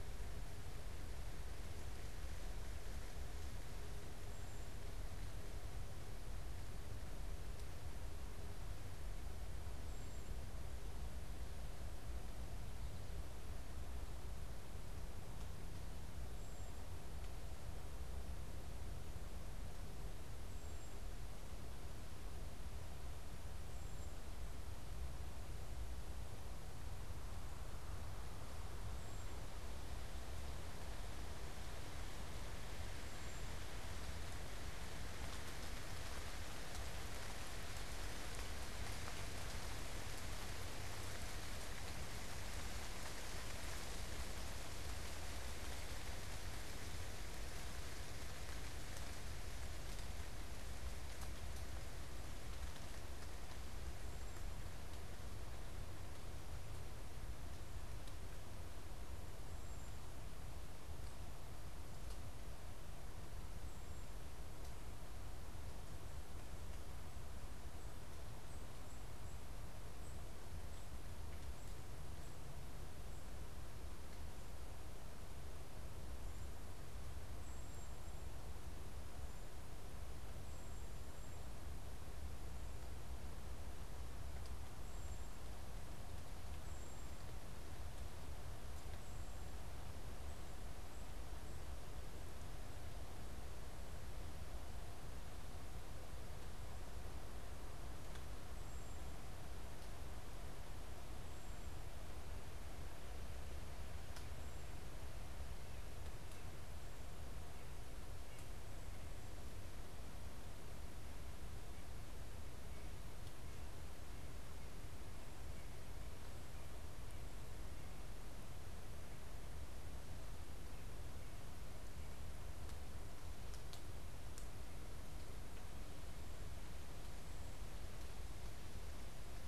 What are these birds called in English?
unidentified bird